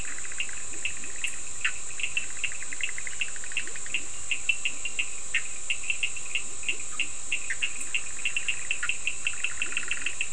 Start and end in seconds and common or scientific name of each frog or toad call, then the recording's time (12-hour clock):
0.0	1.5	Leptodactylus latrans
0.0	4.1	Bischoff's tree frog
0.0	10.3	Cochran's lime tree frog
3.4	4.5	Leptodactylus latrans
5.1	5.6	Bischoff's tree frog
6.0	7.4	Leptodactylus latrans
7.2	10.3	Bischoff's tree frog
9.1	10.3	Leptodactylus latrans
10:30pm